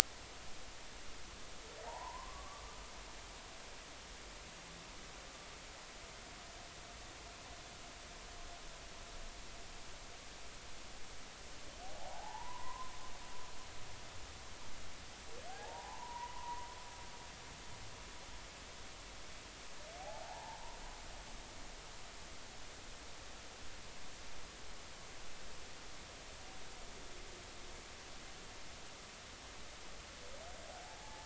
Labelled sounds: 1.8	2.6	humpback whale, 0.80 to 1.2 kHz
12.0	12.9	humpback whale, 0.80 to 1.1 kHz
15.5	16.7	humpback whale, 0.80 to 1.1 kHz
20.0	20.6	humpback whale, 0.80 to 0.99 kHz
30.8	31.2	humpback whale, 0.80 to 0.93 kHz

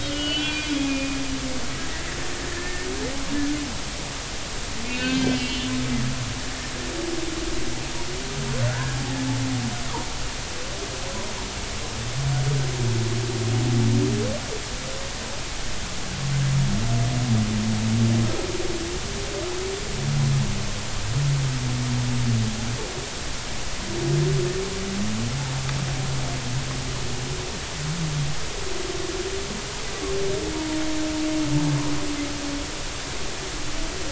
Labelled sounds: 0.0	1.2	humpback whale, 1.4 to 3.4 kHz
2.5	2.9	humpback whale, 1.7 to 1.9 kHz
4.8	5.7	humpback whale, 1.5 to 4.5 kHz
8.7	9.0	humpback whale, 1.3 to 1.8 kHz

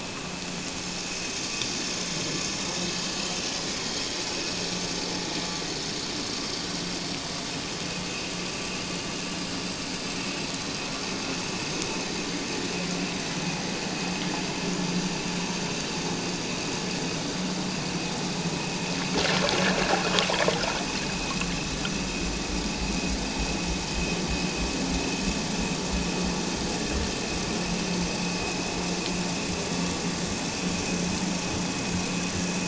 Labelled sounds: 8.1	8.3	vessel noise, 2.4 to 2.8 kHz

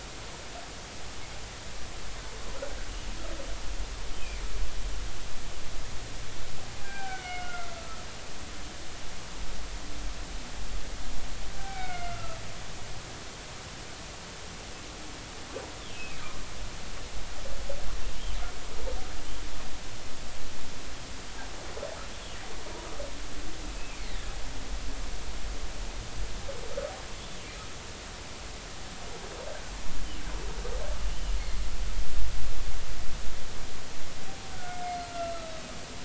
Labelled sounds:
6.8	8.0	humpback whale, 0.80 to 3.0 kHz
11.6	12.4	humpback whale, 0.80 to 2.8 kHz
15.9	16.2	humpback whale, 2.5 to 2.7 kHz
31.1	31.4	humpback whale, 2.8 to 3.2 kHz
34.5	35.5	humpback whale, 1.2 to 4.3 kHz

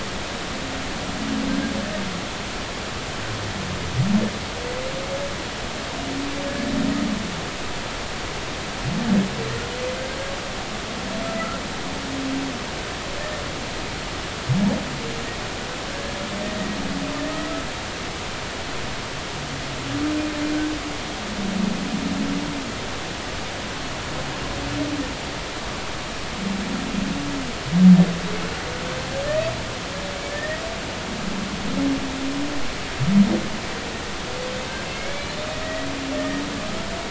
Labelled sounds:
15.9	16.1	humpback whale, 1.5 to 1.7 kHz
30.3	30.6	humpback whale, 1.7 to 2.0 kHz
34.9	35.9	humpback whale, 1.9 to 2.4 kHz
36.2	36.4	humpback whale, 1.8 to 1.9 kHz

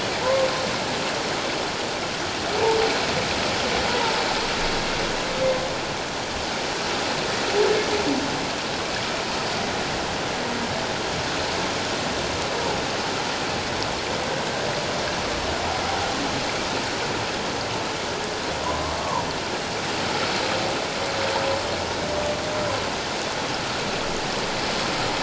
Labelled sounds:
0.2	0.5	humpback whale, 0.84 to 1.1 kHz
18.6	19.2	humpback whale, 0.88 to 1.2 kHz

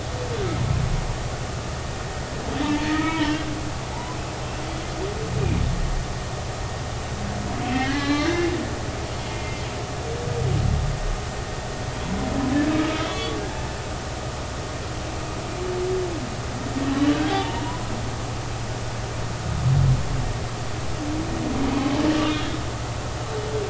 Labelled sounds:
2.6	3.4	humpback whale, 0.86 to 3.3 kHz
3.9	4.2	humpback whale, 0.80 to 1.1 kHz
7.6	8.5	humpback whale, 1.1 to 4.3 kHz
9.3	9.7	humpback whale, 2.0 to 2.2 kHz
12.9	13.4	humpback whale, 1.1 to 3.5 kHz
17.1	17.8	humpback whale, 0.80 to 1.7 kHz
22.3	22.6	humpback whale, 3.2 to 3.4 kHz

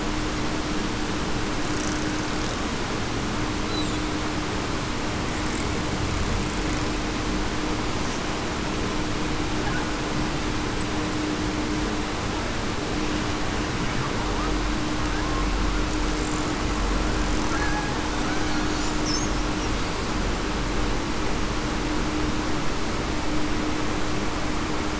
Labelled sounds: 17.5	17.9	killer whale, Bigg's (transient), 1.6 to 1.7 kHz

